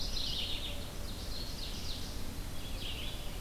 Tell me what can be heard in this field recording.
Mourning Warbler, Red-eyed Vireo, Ovenbird